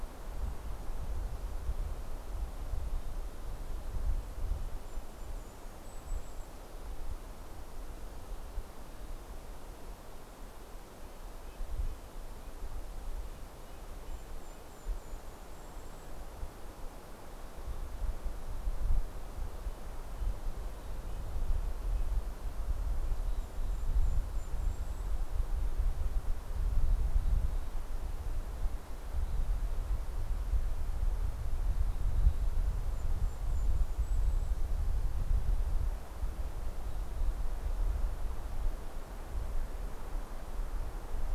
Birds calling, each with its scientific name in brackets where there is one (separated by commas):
Red-breasted Nuthatch (Sitta canadensis), Golden-crowned Kinglet (Regulus satrapa), Mountain Chickadee (Poecile gambeli)